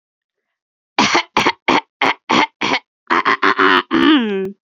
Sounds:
Throat clearing